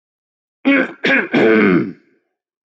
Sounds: Throat clearing